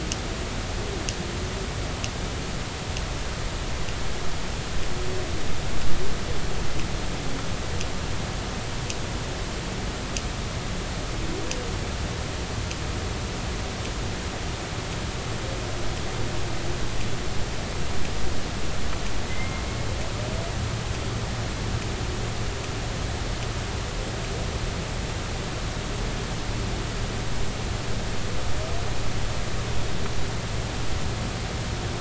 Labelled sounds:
19.3	19.6	humpback whale, 2.0 to 2.2 kHz

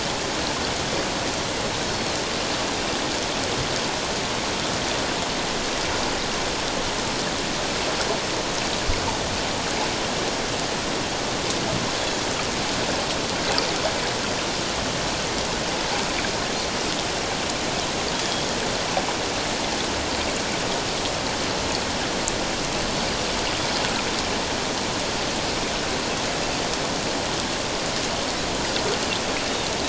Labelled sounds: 18.1	18.5	Pacific white-sided dolphin, 3.2 to 3.4 kHz

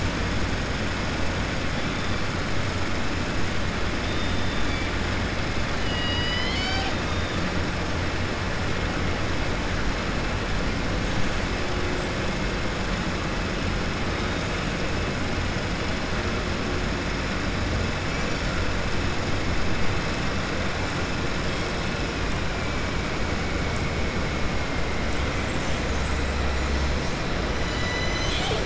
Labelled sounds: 5.7	7.3	killer whale, southern resident, 0.78 to 7.4 kHz
25.3	26.4	killer whale, southern resident, 6.1 to 8.0 kHz

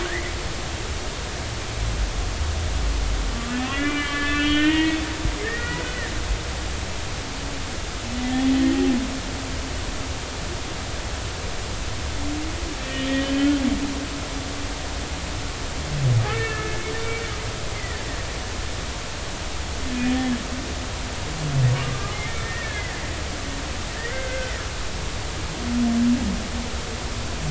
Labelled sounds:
0.0	0.3	humpback whale, 1.4 to 2.1 kHz
3.5	5.0	humpback whale, 1.1 to 3.4 kHz
5.4	5.9	humpback whale, 1.6 to 2.0 kHz
12.8	13.1	humpback whale, 1.7 to 1.9 kHz
16.2	18.1	humpback whale, 1.2 to 2.3 kHz
22.4	22.9	humpback whale, 1.6 to 2.3 kHz
24.0	24.5	humpback whale, 1.5 to 2.2 kHz

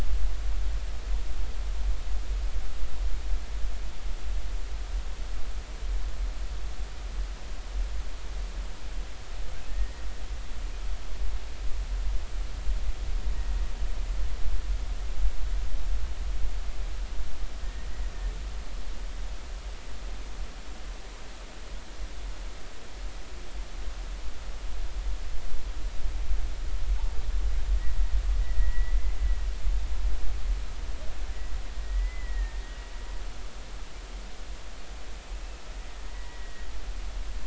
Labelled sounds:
9.7	10.0	humpback whale, 1.8 to 2.0 kHz
17.6	18.0	humpback whale, 1.8 to 2.0 kHz
28.5	29.2	humpback whale, 1.8 to 2.1 kHz
31.8	32.8	humpback whale, 1.8 to 2.1 kHz
36.1	36.7	humpback whale, 1.8 to 2.0 kHz

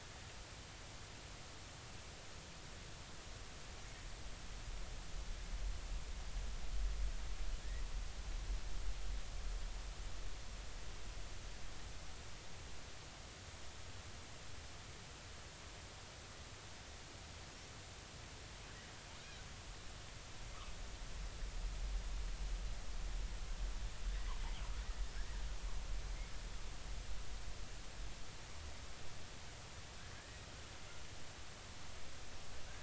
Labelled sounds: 25.1	25.4	killer whale, southern resident, J clan, 1.5 to 2.0 kHz
30.2	30.5	killer whale, southern resident, J clan, 1.6 to 2.0 kHz

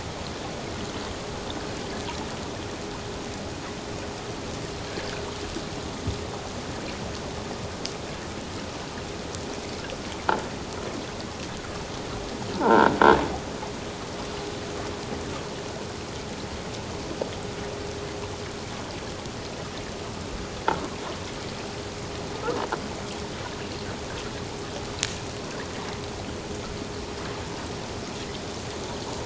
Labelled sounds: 12.5	12.9	croaking sound likely from a nearby submerged object, 0.78 to 1.7 kHz

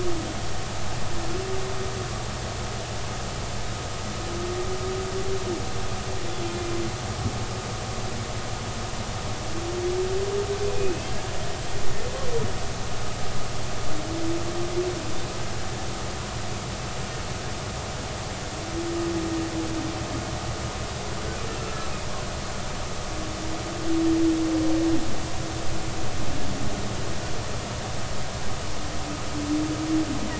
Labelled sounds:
10.7	11.1	humpback whale, 2.4 to 2.7 kHz
21.6	21.9	humpback whale, 1.3 to 1.4 kHz

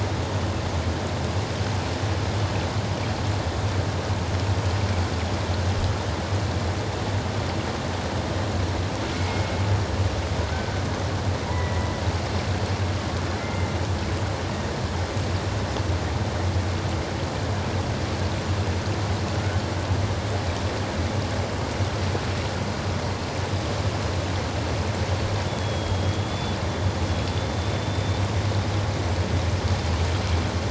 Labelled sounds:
9.1	9.5	killer whale, Bigg's (transient), 2.1 to 2.2 kHz
10.5	10.8	killer whale, Bigg's (transient), 1.4 to 1.6 kHz
11.5	12.0	killer whale, Bigg's (transient), 1.9 to 2.1 kHz
13.4	13.7	killer whale, Bigg's (transient), 1.9 to 2.2 kHz
25.5	26.6	killer whale, Bigg's (transient), 3.2 to 3.5 kHz
27.3	28.2	killer whale, Bigg's (transient), 3.4 to 3.7 kHz

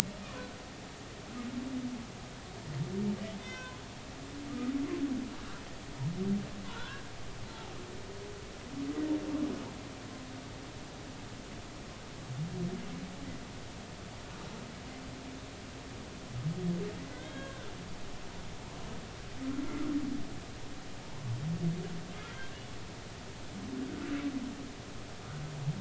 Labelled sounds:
0.2	0.5	humpback whale, 0.99 to 1.3 kHz
3.4	3.8	humpback whale, 0.96 to 2.6 kHz
4.5	4.7	humpback whale, 1.2 to 1.3 kHz
6.6	7.0	humpback whale, 0.90 to 1.7 kHz
17.1	17.7	humpback whale, 1.2 to 3.3 kHz
19.6	19.9	humpback whale, 1.1 to 1.4 kHz

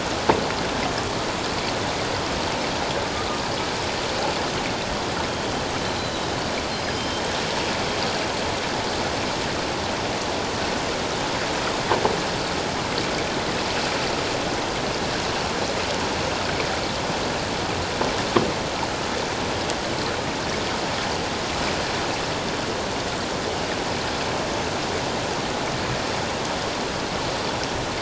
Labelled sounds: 5.9	7.2	killer whale, 3.1 to 4.1 kHz

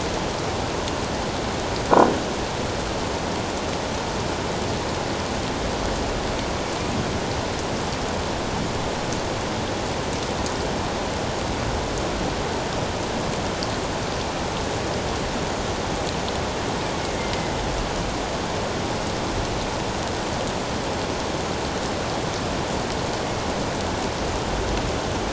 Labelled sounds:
17.2	17.5	killer whale, northern resident, A clan, AA subclan, A04 pod, 2.0 to 2.2 kHz

